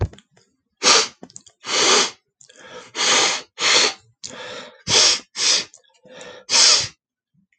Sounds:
Sniff